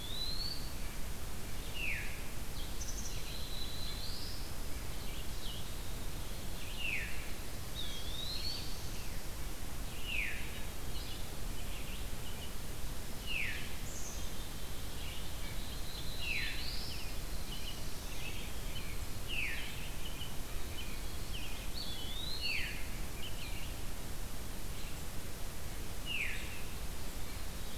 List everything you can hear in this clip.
Eastern Wood-Pewee, Red-eyed Vireo, Veery, Black-capped Chickadee, Black-throated Blue Warbler, American Robin